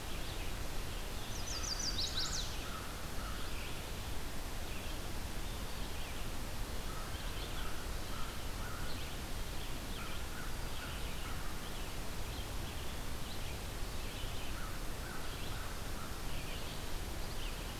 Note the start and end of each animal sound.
[0.00, 17.79] Red-eyed Vireo (Vireo olivaceus)
[1.18, 2.50] Chestnut-sided Warbler (Setophaga pensylvanica)
[2.08, 3.56] American Crow (Corvus brachyrhynchos)
[6.76, 10.59] American Crow (Corvus brachyrhynchos)
[14.57, 16.17] American Crow (Corvus brachyrhynchos)

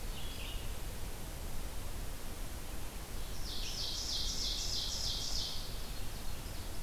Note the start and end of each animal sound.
[0.00, 6.82] Red-eyed Vireo (Vireo olivaceus)
[3.00, 5.76] Ovenbird (Seiurus aurocapilla)

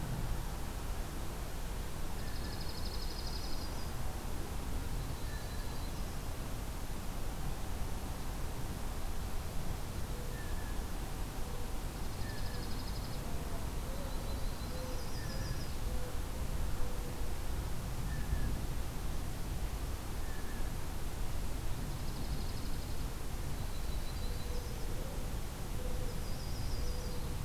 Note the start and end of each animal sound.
[2.08, 3.84] Dark-eyed Junco (Junco hyemalis)
[2.15, 2.81] Blue Jay (Cyanocitta cristata)
[2.91, 3.91] Yellow-rumped Warbler (Setophaga coronata)
[4.98, 6.21] Yellow-rumped Warbler (Setophaga coronata)
[5.06, 5.86] Blue Jay (Cyanocitta cristata)
[10.16, 10.91] Blue Jay (Cyanocitta cristata)
[11.88, 13.25] Dark-eyed Junco (Junco hyemalis)
[12.19, 12.79] Blue Jay (Cyanocitta cristata)
[13.97, 15.75] Yellow-rumped Warbler (Setophaga coronata)
[15.02, 15.82] Blue Jay (Cyanocitta cristata)
[17.95, 18.56] Blue Jay (Cyanocitta cristata)
[20.13, 20.72] Blue Jay (Cyanocitta cristata)
[21.78, 23.17] Dark-eyed Junco (Junco hyemalis)
[23.46, 24.93] Yellow-rumped Warbler (Setophaga coronata)
[25.91, 27.41] Yellow-rumped Warbler (Setophaga coronata)

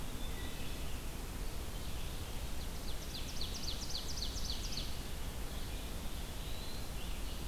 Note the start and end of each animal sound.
[0.00, 7.47] Red-eyed Vireo (Vireo olivaceus)
[0.09, 0.83] Wood Thrush (Hylocichla mustelina)
[1.94, 5.18] Ovenbird (Seiurus aurocapilla)
[5.83, 6.93] Black-throated Blue Warbler (Setophaga caerulescens)

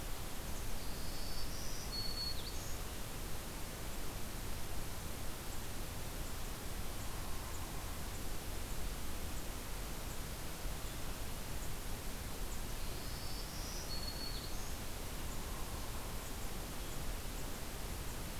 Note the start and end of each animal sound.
[0.75, 2.81] Black-throated Green Warbler (Setophaga virens)
[7.03, 8.22] Hairy Woodpecker (Dryobates villosus)
[12.73, 14.77] Black-throated Green Warbler (Setophaga virens)
[15.09, 16.09] Hairy Woodpecker (Dryobates villosus)

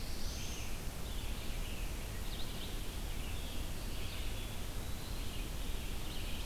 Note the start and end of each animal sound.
[0.00, 0.96] Black-throated Blue Warbler (Setophaga caerulescens)
[0.00, 6.46] Red-eyed Vireo (Vireo olivaceus)
[4.03, 5.30] Eastern Wood-Pewee (Contopus virens)

